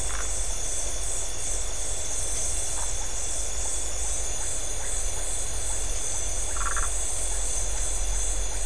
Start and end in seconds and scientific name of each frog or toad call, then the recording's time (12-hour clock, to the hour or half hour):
0.0	0.4	Phyllomedusa distincta
2.7	2.9	Phyllomedusa distincta
6.5	7.0	Phyllomedusa distincta
10:30pm